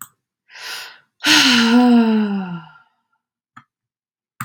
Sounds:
Sigh